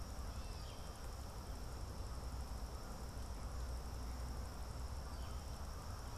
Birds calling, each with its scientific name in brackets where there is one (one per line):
Northern Flicker (Colaptes auratus)